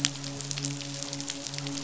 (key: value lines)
label: biophony, midshipman
recorder: SoundTrap 500